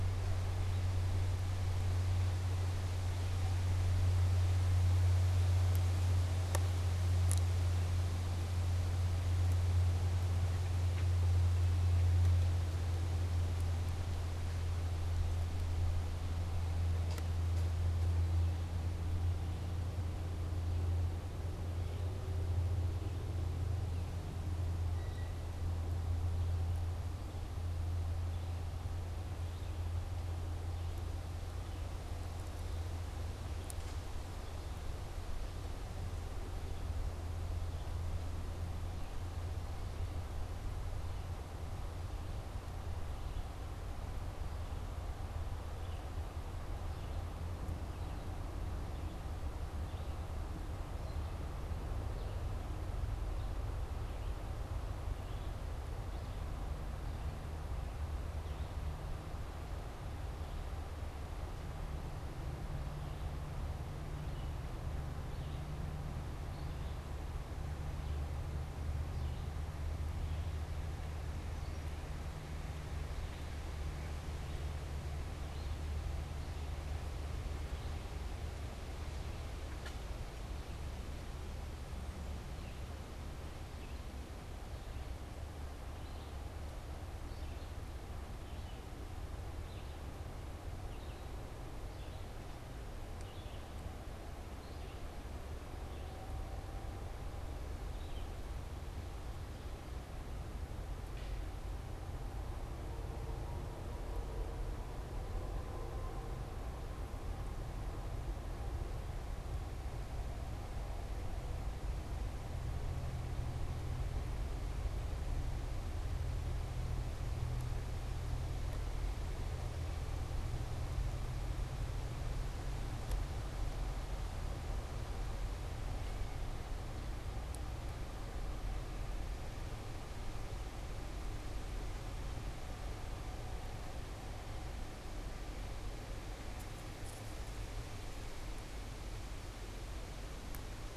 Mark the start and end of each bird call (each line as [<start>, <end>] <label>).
[24.81, 25.51] unidentified bird
[41.01, 98.51] Red-eyed Vireo (Vireo olivaceus)